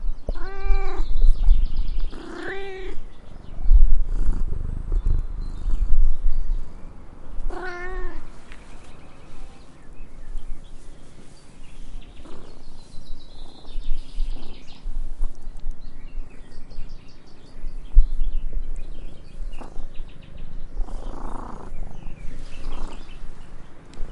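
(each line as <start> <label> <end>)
0.0 Birds chirping. 24.1
0.5 A cat meows periodically. 8.4
12.2 A cat purrs softly nearby. 24.1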